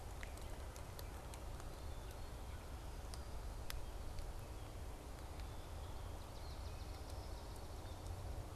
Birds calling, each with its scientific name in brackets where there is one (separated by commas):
Swamp Sparrow (Melospiza georgiana)